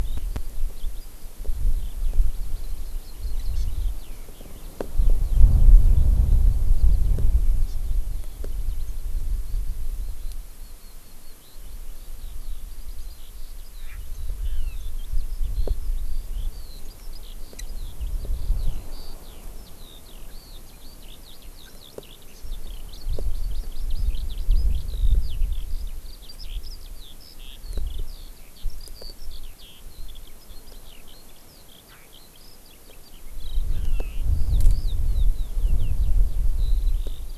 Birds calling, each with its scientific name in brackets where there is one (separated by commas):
Hawaii Amakihi (Chlorodrepanis virens), Chinese Hwamei (Garrulax canorus), Eurasian Skylark (Alauda arvensis)